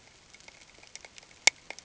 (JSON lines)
{"label": "ambient", "recorder": "HydroMoth"}